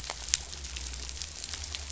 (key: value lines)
label: anthrophony, boat engine
recorder: SoundTrap 500